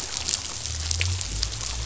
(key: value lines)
label: anthrophony, boat engine
recorder: SoundTrap 500